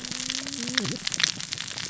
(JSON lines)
{"label": "biophony, cascading saw", "recorder": "SoundTrap 600 or HydroMoth"}